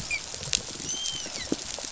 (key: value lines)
label: biophony, dolphin
recorder: SoundTrap 500